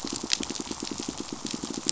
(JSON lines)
{"label": "biophony, pulse", "recorder": "SoundTrap 500"}